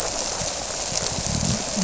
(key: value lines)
label: biophony
recorder: SoundTrap 300